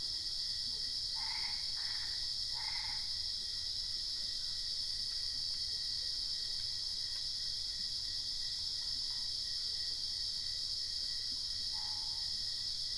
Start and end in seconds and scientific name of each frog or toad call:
1.0	3.2	Boana albopunctata